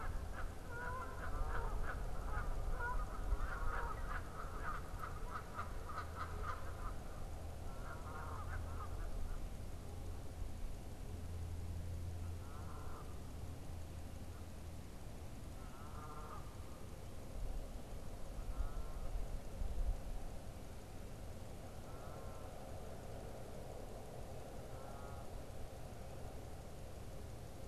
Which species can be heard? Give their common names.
Canada Goose, unidentified bird